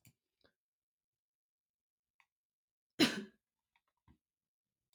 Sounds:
Cough